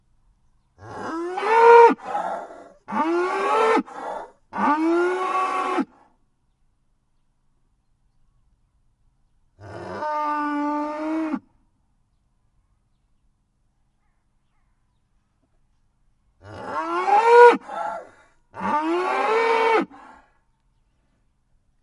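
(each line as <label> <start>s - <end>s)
A cow moos loudly and aggressively. 0.9s - 6.0s
A cow moos quietly. 9.5s - 11.5s
A cow moos loudly, screaming aggressively and angrily. 16.5s - 19.9s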